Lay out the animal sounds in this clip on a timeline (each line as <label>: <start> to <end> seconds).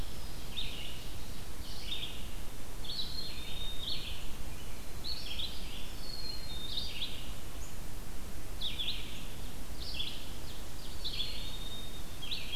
Red-eyed Vireo (Vireo olivaceus): 0.0 to 12.6 seconds
Black-capped Chickadee (Poecile atricapillus): 3.0 to 4.1 seconds
Black-capped Chickadee (Poecile atricapillus): 5.9 to 7.0 seconds
Ovenbird (Seiurus aurocapilla): 9.4 to 11.3 seconds
Black-capped Chickadee (Poecile atricapillus): 10.9 to 12.1 seconds